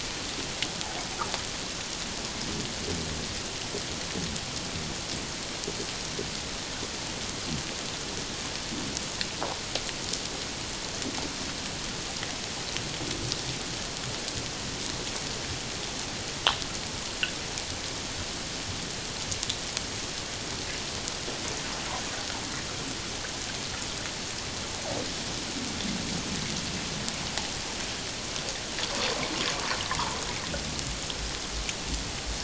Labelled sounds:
29.9	30.2	water noise, 0.84 to 1.4 kHz

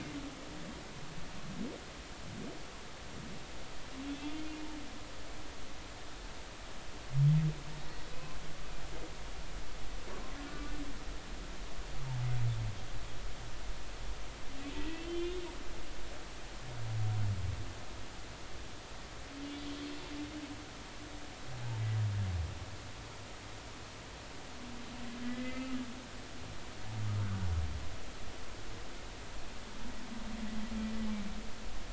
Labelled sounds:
4.2	4.4	humpback whale, 3.2 to 3.5 kHz
14.8	15.4	humpback whale, 1.9 to 3.7 kHz
25.2	25.8	humpback whale, 1.2 to 2.1 kHz
27.2	27.5	humpback whale, 1.3 to 1.6 kHz

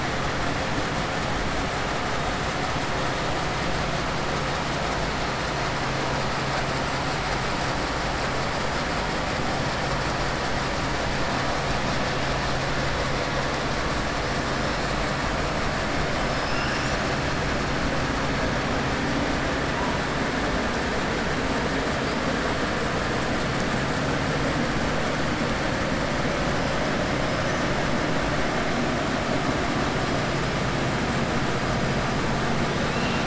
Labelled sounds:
16.4	17.0	killer whale, 2.5 to 3.6 kHz
32.8	33.2	killer whale, 2.5 to 4.7 kHz

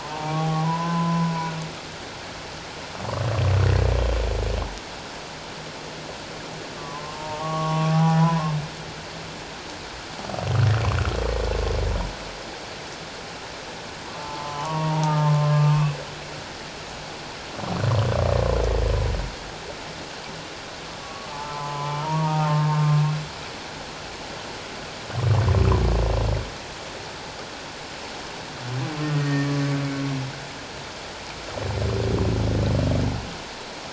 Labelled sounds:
0.0	1.6	humpback whale, 0.78 to 1.5 kHz
6.8	8.5	humpback whale, 0.78 to 1.2 kHz
14.1	16.0	humpback whale, 0.78 to 2.7 kHz
21.0	22.8	humpback whale, 0.81 to 3.1 kHz
29.2	29.6	humpback whale, 1.7 to 1.9 kHz

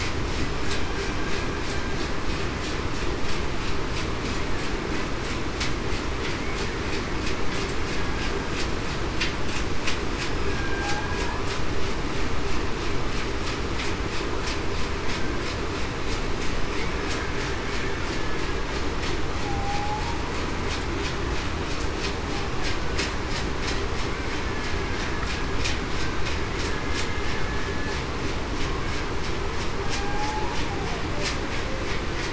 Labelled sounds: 10.5	11.0	killer whale, Bigg's (transient), 1.5 to 1.7 kHz
19.4	20.0	humpback whale, 0.77 to 0.87 kHz
29.8	30.2	humpback whale, 1.59 to 1.64 kHz

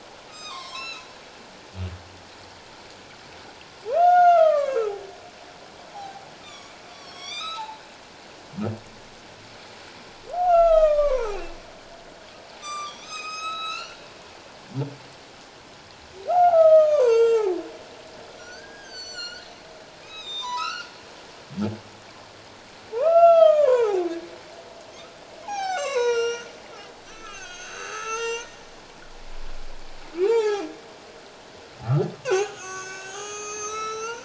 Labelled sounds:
0.3	1.1	humpback whale, 0.94 to 6.8 kHz
3.9	4.9	humpback whale, 0.78 to 6.5 kHz
5.9	7.8	humpback whale, 0.78 to 8.0 kHz
10.3	11.6	humpback whale, 0.78 to 4.1 kHz
12.6	14.1	humpback whale, 1.1 to 7.8 kHz
16.3	17.5	humpback whale, 0.78 to 7.9 kHz
18.4	20.9	humpback whale, 0.88 to 7.8 kHz
22.9	24.1	humpback whale, 0.78 to 4.1 kHz
25.4	26.5	humpback whale, 0.78 to 7.9 kHz
27.1	28.6	humpback whale, 0.84 to 7.6 kHz
30.2	30.7	humpback whale, 0.78 to 7.5 kHz
32.1	34.2	humpback whale, 0.94 to 8.0 kHz

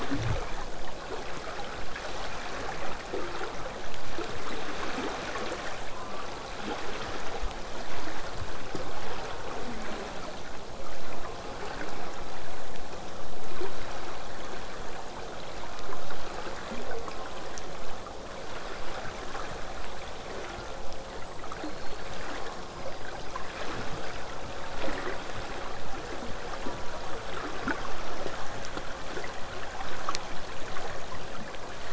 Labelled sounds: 5.8	6.6	killer whale, southern resident, J pod, call S04, 0.35 to 1.4 kHz
15.6	16.2	killer whale, southern resident, J pod, call S04, 0.17 to 1.5 kHz
16.9	17.6	killer whale, southern resident, J pod, call S04, 0.19 to 1.4 kHz
19.9	24.6	killer whale, southern resident, J pod, whistle, 4.0 to 8.0 kHz
20.4	21.2	killer whale, southern resident, J pod, call S04, 0.23 to 1.6 kHz
26.6	27.2	killer whale, southern resident, J pod, call S04, 0.59 to 1.5 kHz

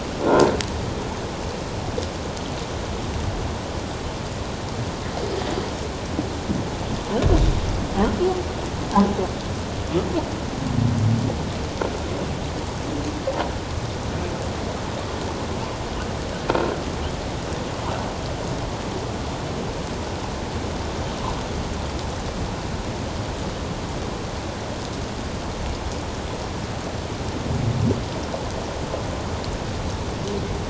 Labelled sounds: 0.2	0.5	croaking sound likely from a nearby submerged object, 1.3 to 1.7 kHz

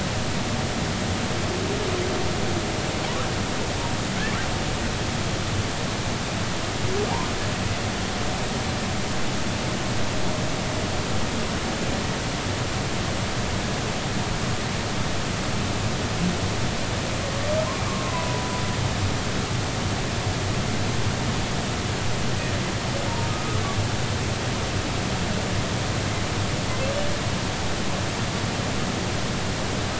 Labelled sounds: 17.9	18.5	humpback whale, 0.93 to 1.2 kHz

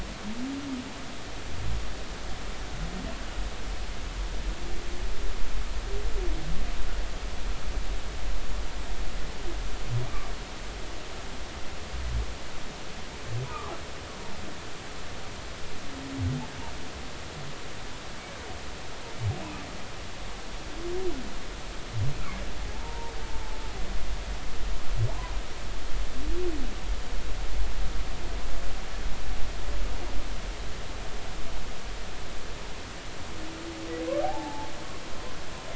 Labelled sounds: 22.7	23.1	humpback whale, 0.83 to 0.99 kHz
34.2	34.7	humpback whale, 0.80 to 0.99 kHz

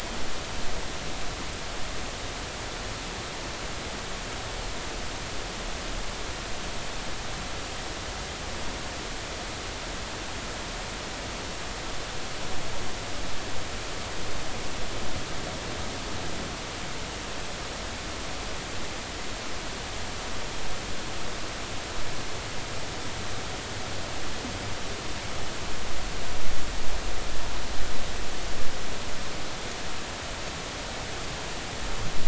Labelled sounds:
1.0	1.3	humpback whale, 3.7 to 4.0 kHz

